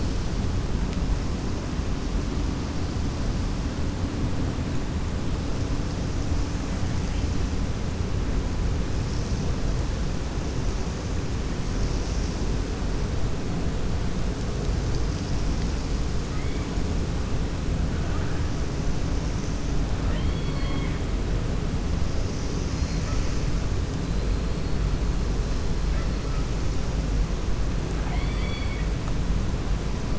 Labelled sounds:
20.0	21.0	killer whale, 0.57 to 4.5 kHz
27.9	28.9	killer whale, 0.73 to 4.6 kHz

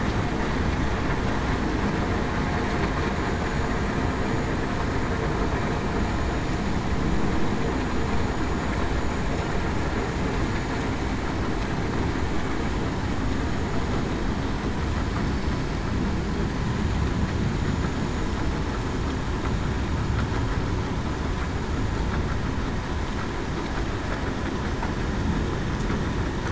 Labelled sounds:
3.3	3.7	vessel noise, 6.87 to 6.94 kHz

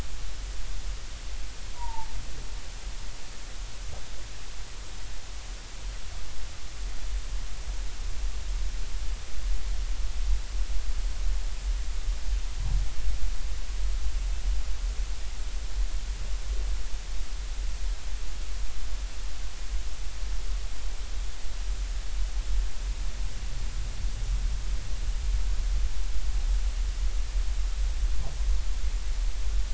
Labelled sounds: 1.8	2.1	humpback whale, 0.80 to 1.0 kHz

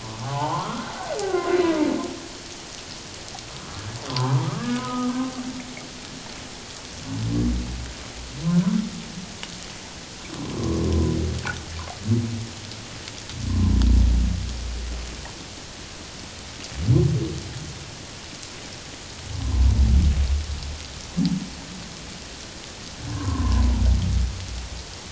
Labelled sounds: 0.0	0.8	humpback whale, 0.78 to 1.5 kHz
4.1	5.1	humpback whale, 0.78 to 1.3 kHz
10.9	11.2	humpback whale, 0.97 to 1.1 kHz
13.5	13.8	humpback whale, 0.88 to 1.1 kHz
19.4	19.7	humpback whale, 0.91 to 1.1 kHz
23.1	23.7	humpback whale, 0.94 to 1.2 kHz

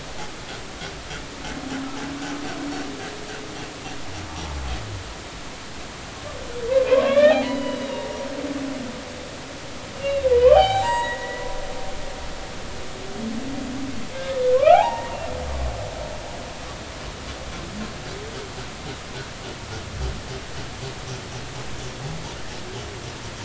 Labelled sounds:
4.3	4.6	humpback whale, 0.80 to 1.1 kHz
6.9	8.1	humpback whale, 0.93 to 4.0 kHz
10.0	11.5	humpback whale, 0.80 to 6.8 kHz
14.5	15.1	humpback whale, 0.80 to 2.9 kHz

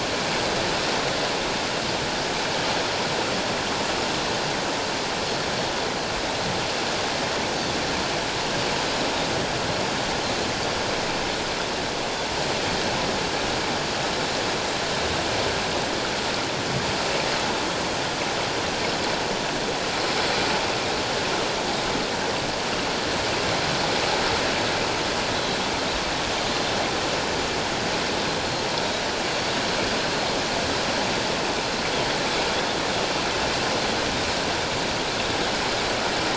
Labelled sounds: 25.3	25.6	Pacific white-sided dolphin, 3.9 to 4.1 kHz

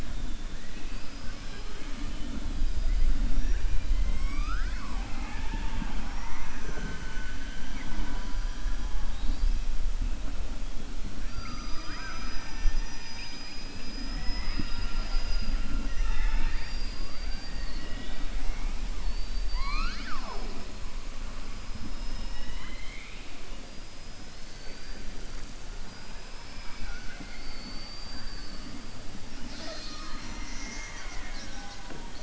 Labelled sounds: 1.7	2.3	killer whale, southern resident, 2.2 to 4.0 kHz
6.0	6.9	killer whale, southern resident, 5.4 to 6.1 kHz
22.0	23.3	killer whale, southern resident, 0.96 to 4.1 kHz
24.4	25.0	killer whale, southern resident, 4.4 to 5.6 kHz

